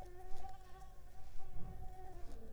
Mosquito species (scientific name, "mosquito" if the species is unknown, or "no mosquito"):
Mansonia uniformis